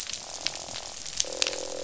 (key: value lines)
label: biophony, croak
recorder: SoundTrap 500